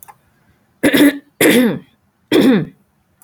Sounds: Throat clearing